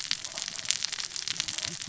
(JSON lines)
{"label": "biophony, cascading saw", "recorder": "SoundTrap 600 or HydroMoth"}